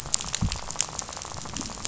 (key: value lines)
label: biophony, rattle
recorder: SoundTrap 500